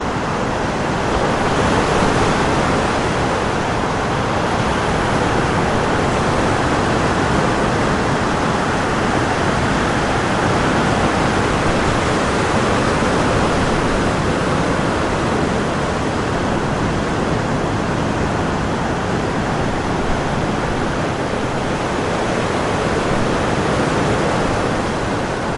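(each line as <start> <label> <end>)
0.0 Waves gently splash along the beach shore in a constant manner. 25.6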